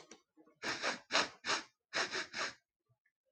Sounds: Sniff